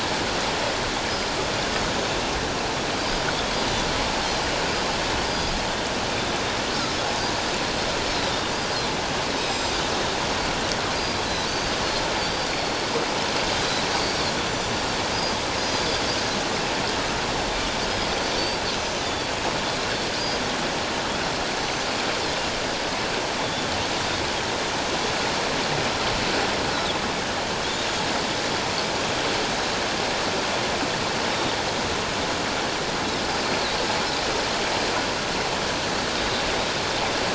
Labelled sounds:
3.3	3.6	Pacific white-sided dolphin, 3.2 to 3.6 kHz
5.2	5.5	Pacific white-sided dolphin, 4.8 to 4.9 kHz
8.3	8.5	Pacific white-sided dolphin, 3.5 to 3.7 kHz
9.4	9.7	Pacific white-sided dolphin, 4.9 to 7.6 kHz
11.5	12.8	Pacific white-sided dolphin, 4.3 to 4.8 kHz
14.4	15.8	Pacific white-sided dolphin, 4.8 to 7.3 kHz
19.0	19.3	Pacific white-sided dolphin, 3.3 to 3.6 kHz
21.6	21.9	Pacific white-sided dolphin, 6.0 to 6.2 kHz
23.4	23.7	Pacific white-sided dolphin, 3.4 to 3.6 kHz

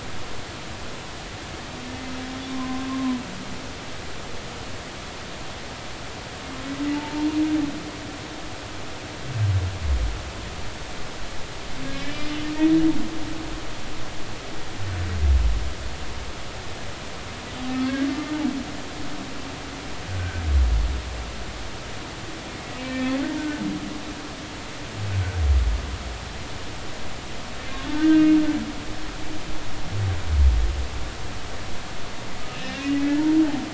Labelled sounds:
2.5	3.2	humpback whale, 0.96 to 1.1 kHz
6.9	7.3	humpback whale, 0.83 to 0.96 kHz
11.9	12.3	humpback whale, 2.1 to 2.4 kHz
20.1	20.4	humpback whale, 1.5 to 1.6 kHz
22.8	23.6	humpback whale, 1.4 to 2.7 kHz
27.9	28.3	humpback whale, 1.5 to 1.6 kHz
32.5	33.0	humpback whale, 2.5 to 2.9 kHz

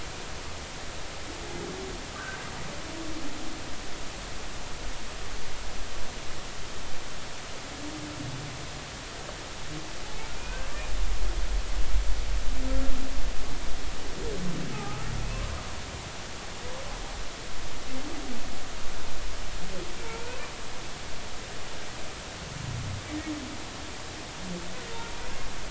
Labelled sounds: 10.4	10.7	humpback whale, 1.4 to 2.6 kHz
14.7	15.4	humpback whale, 0.80 to 2.7 kHz
20.0	20.3	humpback whale, 0.86 to 0.99 kHz

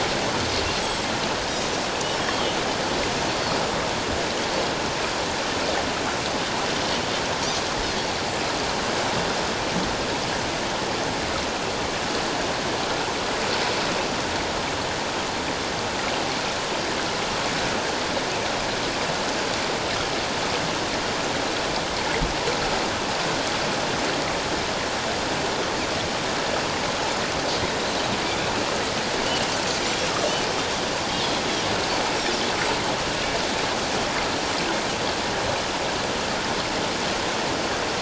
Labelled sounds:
0.3	0.5	Pacific white-sided dolphin, 6.1 to 6.3 kHz
2.2	2.6	Pacific white-sided dolphin, 2.9 to 3.3 kHz

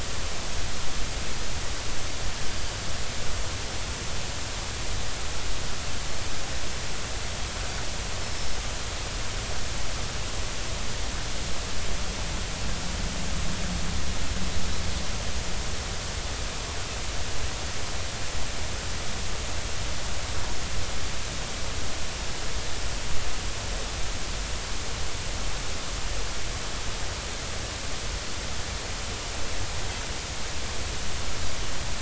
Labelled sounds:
8.2	8.6	Pacific white-sided dolphin, 5.1 to 5.4 kHz

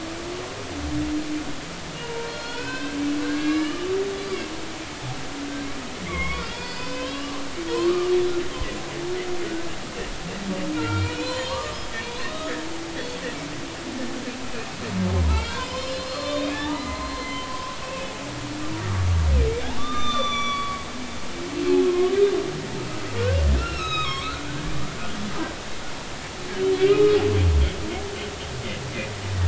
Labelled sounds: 1.9	3.9	humpback whale, 0.90 to 4.4 kHz
6.0	7.4	humpback whale, 1.0 to 5.2 kHz
7.7	8.1	humpback whale, 0.90 to 1.3 kHz
10.8	12.5	humpback whale, 0.90 to 4.4 kHz
15.3	18.1	humpback whale, 0.83 to 5.5 kHz
19.8	22.1	humpback whale, 1.0 to 6.0 kHz
23.6	24.7	humpback whale, 1.0 to 6.5 kHz
26.8	27.2	humpback whale, 1.2 to 3.0 kHz
27.8	28.0	humpback whale, 2.2 to 2.6 kHz

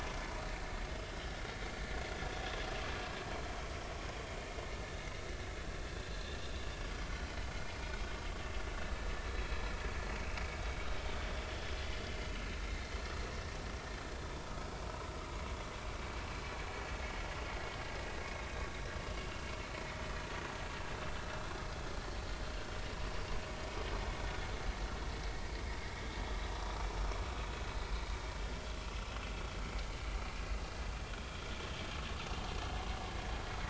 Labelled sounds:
10.5	10.8	vessel noise, 3.6 to 3.8 kHz
11.9	12.1	vessel noise, 2.0 to 2.1 kHz
22.0	22.4	vessel noise, 4.4 to 4.5 kHz

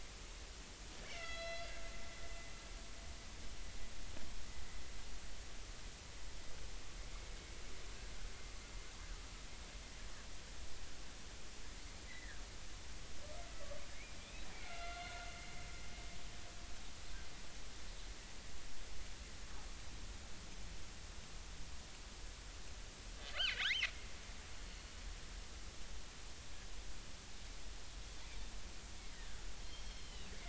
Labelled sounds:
1.1	1.7	killer whale, northern resident, 1.3 to 5.5 kHz
12.1	12.4	killer whale, northern resident, 1.5 to 2.1 kHz
14.2	15.3	killer whale, northern resident, 1.3 to 4.4 kHz
23.3	23.9	killer whale, northern resident, 1.1 to 4.8 kHz
24.6	24.9	killer whale, northern resident, 4.3 to 4.4 kHz
29.0	30.3	killer whale, northern resident, 1.7 to 4.4 kHz

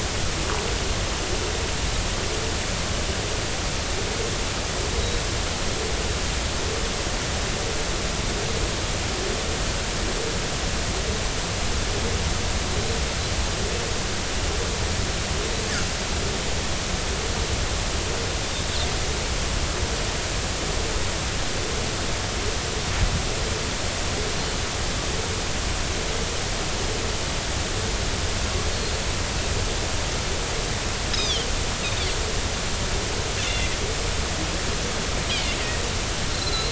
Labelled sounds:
6.0	6.2	Pacific white-sided dolphin, 3.8 to 3.9 kHz
31.1	31.5	Pacific white-sided dolphin, 2.9 to 6.5 kHz
33.4	33.7	Pacific white-sided dolphin, 2.6 to 3.6 kHz
35.3	35.6	Pacific white-sided dolphin, 2.0 to 2.5 kHz
36.3	36.7	Pacific white-sided dolphin, 3.9 to 4.3 kHz

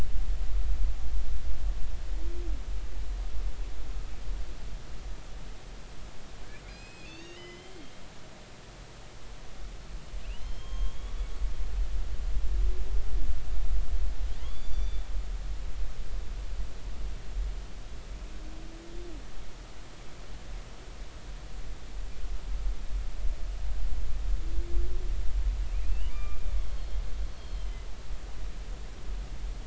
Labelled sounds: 6.6	8.0	humpback whale, 1.8 to 7.7 kHz
10.2	11.2	humpback whale, 0.99 to 6.5 kHz
14.4	15.0	humpback whale, 2.3 to 7.1 kHz
25.8	27.9	humpback whale, 1.1 to 4.4 kHz

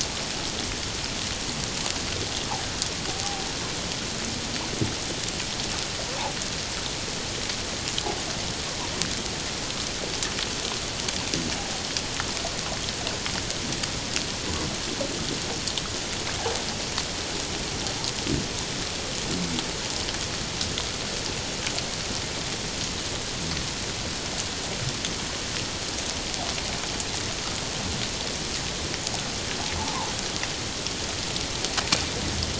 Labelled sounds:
29.8	30.1	fish, 0.78 to 1.1 kHz

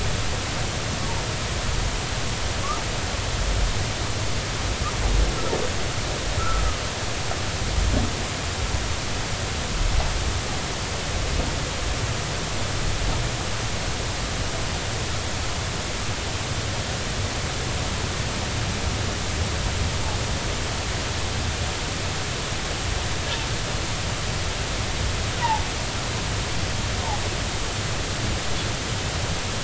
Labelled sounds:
6.4	6.6	humpback whale, 1.2 to 1.5 kHz

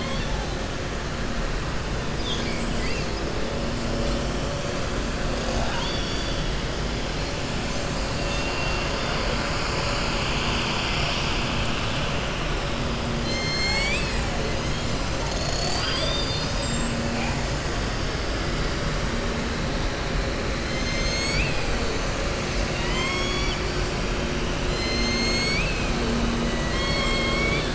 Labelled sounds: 5.4	6.4	killer whale, southern resident, 0.53 to 5.8 kHz
13.1	14.2	killer whale, southern resident, 1.6 to 7.9 kHz
22.6	23.6	killer whale, southern resident, 0.99 to 7.6 kHz
24.6	25.9	killer whale, southern resident, 2.0 to 7.7 kHz
26.4	27.7	killer whale, southern resident, 1.1 to 5.4 kHz

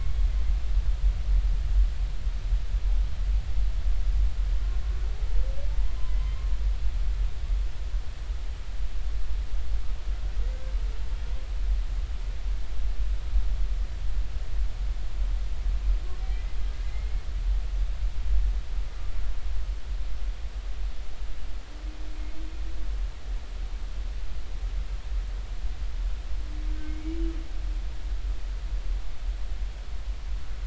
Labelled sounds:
6.1	6.5	humpback whale, 2.0 to 2.2 kHz
16.3	16.6	humpback whale, 1.9 to 2.1 kHz
17.8	18.3	humpback whale, 2.0 to 2.2 kHz
26.8	27.2	humpback whale, 2.1 to 2.4 kHz

